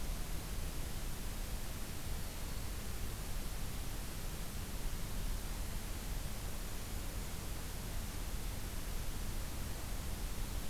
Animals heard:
forest ambience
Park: Acadia National Park